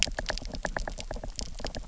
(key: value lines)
label: biophony, knock
recorder: SoundTrap 300